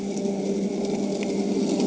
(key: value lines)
label: anthrophony, boat engine
recorder: HydroMoth